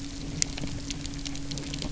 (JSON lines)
{"label": "anthrophony, boat engine", "recorder": "SoundTrap 300"}